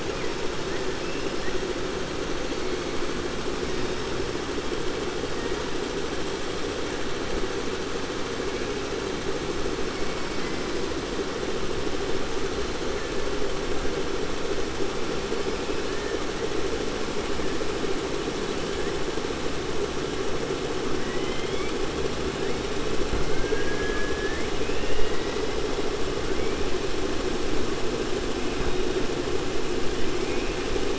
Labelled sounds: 21.0	21.7	killer whale, 1.9 to 3.5 kHz
23.3	25.4	killer whale, 0.99 to 3.4 kHz

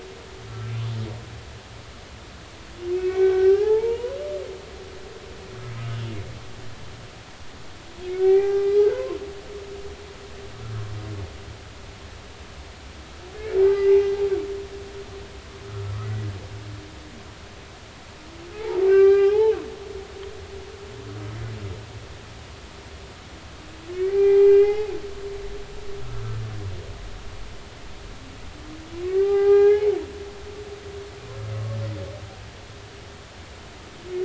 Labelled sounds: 2.9	4.2	humpback whale, 0.80 to 3.0 kHz
8.2	9.2	humpback whale, 0.80 to 2.4 kHz
13.6	14.0	humpback whale, 1.9 to 2.1 kHz
18.5	19.6	humpback whale, 0.80 to 4.9 kHz
23.9	24.9	humpback whale, 0.80 to 3.0 kHz
29.1	29.9	humpback whale, 0.80 to 2.5 kHz

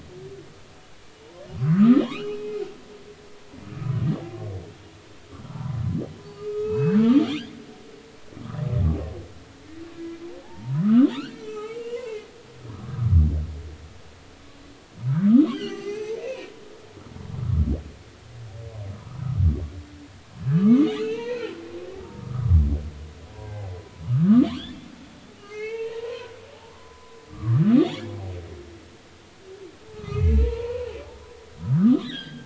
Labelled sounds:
1.6	2.6	humpback whale, 0.96 to 3.1 kHz
5.5	5.8	humpback whale, 0.83 to 1.1 kHz
6.3	7.4	humpback whale, 1.2 to 4.5 kHz
10.7	12.9	humpback whale, 0.80 to 4.4 kHz
15.5	16.5	humpback whale, 0.80 to 6.3 kHz
18.9	19.2	humpback whale, 1.1 to 1.4 kHz
20.6	22.6	humpback whale, 0.86 to 2.9 kHz
23.4	23.8	humpback whale, 1.9 to 2.1 kHz
24.1	24.5	humpback whale, 1.0 to 1.4 kHz
25.4	28.1	humpback whale, 0.80 to 3.8 kHz
29.9	30.9	humpback whale, 1.1 to 4.3 kHz
31.4	32.4	humpback whale, 0.86 to 4.1 kHz

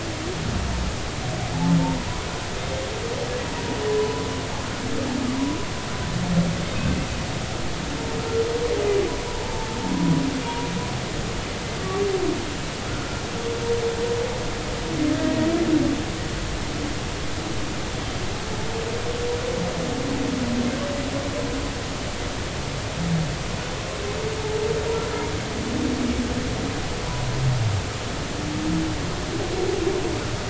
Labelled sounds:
1.8	2.1	humpback whale, 0.86 to 1.0 kHz
4.0	4.3	humpback whale, 0.96 to 1.2 kHz
9.4	10.2	humpback whale, 0.83 to 1.1 kHz
15.2	15.5	humpback whale, 1.9 to 2.0 kHz

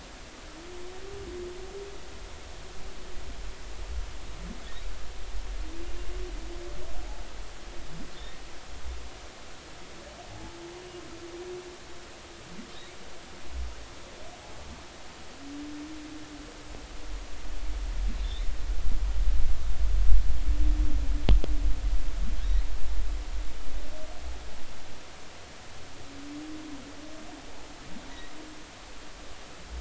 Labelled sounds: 10.3	10.6	humpback whale, 0.80 to 0.90 kHz

